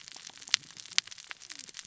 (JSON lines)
{"label": "biophony, cascading saw", "recorder": "SoundTrap 600 or HydroMoth"}